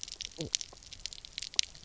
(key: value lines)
label: biophony
recorder: SoundTrap 300